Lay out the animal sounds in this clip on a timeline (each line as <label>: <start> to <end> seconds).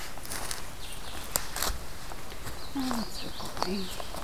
Blue-headed Vireo (Vireo solitarius): 0.0 to 4.2 seconds
Common Yellowthroat (Geothlypis trichas): 2.4 to 4.0 seconds